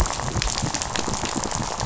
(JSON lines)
{"label": "biophony, rattle", "recorder": "SoundTrap 500"}